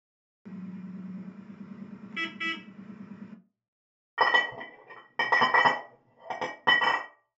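At 0.43 seconds, a vehicle horn is heard. Then at 4.17 seconds, glass chinks.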